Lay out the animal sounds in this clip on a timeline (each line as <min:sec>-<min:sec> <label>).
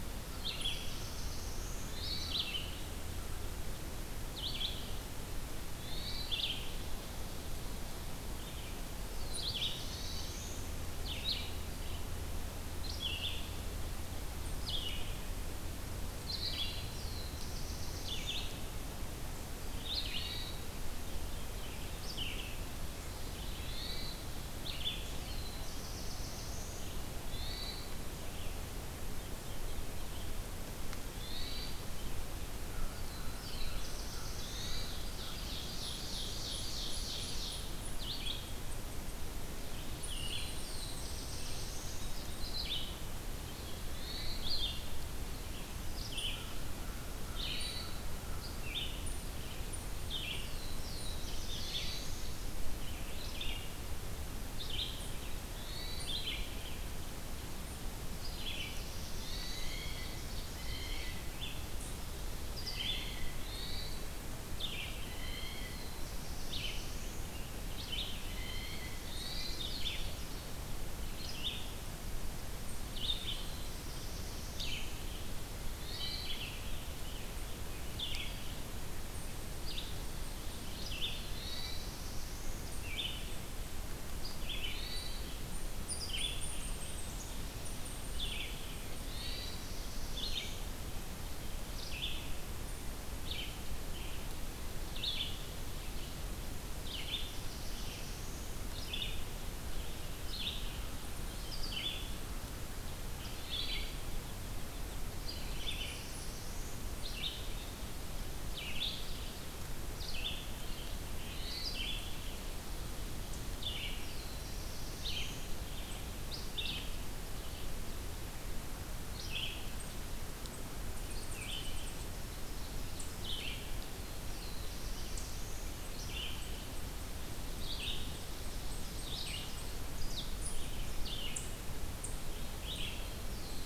0:00.0-0:02.0 Black-throated Blue Warbler (Setophaga caerulescens)
0:00.0-0:25.0 Red-eyed Vireo (Vireo olivaceus)
0:00.5-0:00.8 Eastern Chipmunk (Tamias striatus)
0:01.8-0:02.5 Hermit Thrush (Catharus guttatus)
0:05.8-0:06.4 Hermit Thrush (Catharus guttatus)
0:09.0-0:10.9 Black-throated Blue Warbler (Setophaga caerulescens)
0:09.8-0:10.4 Hermit Thrush (Catharus guttatus)
0:16.3-0:17.0 Hermit Thrush (Catharus guttatus)
0:16.7-0:18.5 Black-throated Blue Warbler (Setophaga caerulescens)
0:20.0-0:20.8 Hermit Thrush (Catharus guttatus)
0:23.6-0:24.3 Hermit Thrush (Catharus guttatus)
0:24.9-0:27.0 Black-throated Blue Warbler (Setophaga caerulescens)
0:27.2-0:28.0 Hermit Thrush (Catharus guttatus)
0:31.1-0:31.9 Hermit Thrush (Catharus guttatus)
0:32.6-0:34.8 American Crow (Corvus brachyrhynchos)
0:32.8-0:34.9 Black-throated Blue Warbler (Setophaga caerulescens)
0:34.3-0:35.0 Hermit Thrush (Catharus guttatus)
0:34.9-0:37.8 Ovenbird (Seiurus aurocapilla)
0:35.8-0:37.9 Golden-crowned Kinglet (Regulus satrapa)
0:37.9-1:35.4 Red-eyed Vireo (Vireo olivaceus)
0:40.0-0:42.2 Black-throated Blue Warbler (Setophaga caerulescens)
0:40.0-0:42.8 Eastern Chipmunk (Tamias striatus)
0:44.0-0:44.5 Hermit Thrush (Catharus guttatus)
0:46.0-0:51.3 Eastern Chipmunk (Tamias striatus)
0:46.2-0:48.6 American Crow (Corvus brachyrhynchos)
0:47.4-0:48.1 Hermit Thrush (Catharus guttatus)
0:50.2-0:52.5 Black-throated Blue Warbler (Setophaga caerulescens)
0:54.8-1:02.1 Eastern Chipmunk (Tamias striatus)
0:55.6-0:56.3 Hermit Thrush (Catharus guttatus)
0:57.8-0:59.8 Black-throated Blue Warbler (Setophaga caerulescens)
0:59.1-0:59.7 Hermit Thrush (Catharus guttatus)
0:59.2-1:01.3 Blue Jay (Cyanocitta cristata)
1:02.4-1:03.4 Blue Jay (Cyanocitta cristata)
1:03.4-1:04.1 Hermit Thrush (Catharus guttatus)
1:05.0-1:05.9 Blue Jay (Cyanocitta cristata)
1:05.6-1:07.3 Black-throated Blue Warbler (Setophaga caerulescens)
1:08.1-1:09.0 Blue Jay (Cyanocitta cristata)
1:09.0-1:10.6 Ovenbird (Seiurus aurocapilla)
1:09.1-1:09.4 Eastern Chipmunk (Tamias striatus)
1:12.5-1:14.1 Eastern Chipmunk (Tamias striatus)
1:13.3-1:15.0 Black-throated Blue Warbler (Setophaga caerulescens)
1:15.7-1:16.4 Hermit Thrush (Catharus guttatus)
1:18.9-1:23.7 Eastern Chipmunk (Tamias striatus)
1:21.1-1:22.7 Black-throated Blue Warbler (Setophaga caerulescens)
1:21.2-1:21.9 Hermit Thrush (Catharus guttatus)
1:24.6-1:25.3 Hermit Thrush (Catharus guttatus)
1:24.8-1:29.7 Eastern Chipmunk (Tamias striatus)
1:29.0-1:29.7 Hermit Thrush (Catharus guttatus)
1:29.2-1:30.6 Black-throated Blue Warbler (Setophaga caerulescens)
1:36.8-2:13.7 Red-eyed Vireo (Vireo olivaceus)
1:36.9-1:38.5 Black-throated Blue Warbler (Setophaga caerulescens)
1:43.3-1:44.0 Hermit Thrush (Catharus guttatus)
1:45.3-1:47.0 Black-throated Blue Warbler (Setophaga caerulescens)
1:51.2-1:51.9 Hermit Thrush (Catharus guttatus)
1:53.8-1:55.5 Black-throated Blue Warbler (Setophaga caerulescens)
1:59.6-2:03.2 Eastern Chipmunk (Tamias striatus)
2:03.8-2:05.9 Black-throated Blue Warbler (Setophaga caerulescens)
2:05.1-2:13.7 Eastern Chipmunk (Tamias striatus)
2:12.9-2:13.7 Black-throated Blue Warbler (Setophaga caerulescens)